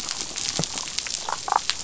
{"label": "biophony, damselfish", "recorder": "SoundTrap 500"}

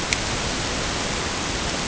{"label": "ambient", "recorder": "HydroMoth"}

